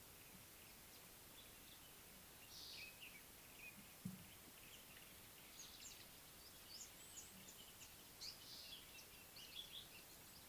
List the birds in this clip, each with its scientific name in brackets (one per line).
Speckled Mousebird (Colius striatus)
African Paradise-Flycatcher (Terpsiphone viridis)